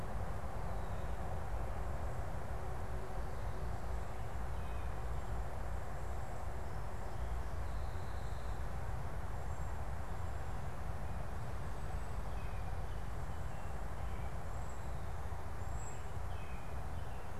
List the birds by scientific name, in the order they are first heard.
Bombycilla cedrorum, Turdus migratorius